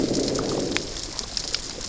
{"label": "biophony, growl", "recorder": "SoundTrap 600 or HydroMoth"}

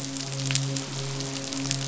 {"label": "biophony, midshipman", "recorder": "SoundTrap 500"}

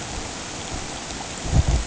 {"label": "ambient", "recorder": "HydroMoth"}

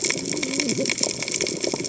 {"label": "biophony, cascading saw", "recorder": "HydroMoth"}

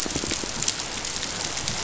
{"label": "biophony, pulse", "recorder": "SoundTrap 500"}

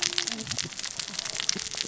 {"label": "biophony, cascading saw", "recorder": "SoundTrap 600 or HydroMoth"}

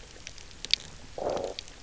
{"label": "biophony, low growl", "recorder": "SoundTrap 300"}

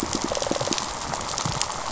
{"label": "biophony, rattle response", "recorder": "SoundTrap 500"}
{"label": "biophony, pulse", "recorder": "SoundTrap 500"}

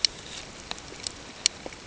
{"label": "ambient", "recorder": "HydroMoth"}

